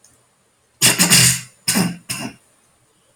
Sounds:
Throat clearing